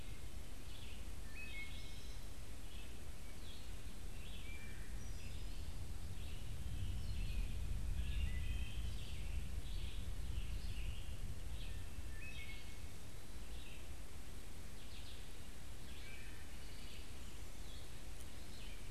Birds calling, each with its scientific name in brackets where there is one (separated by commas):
Wood Thrush (Hylocichla mustelina), Red-eyed Vireo (Vireo olivaceus)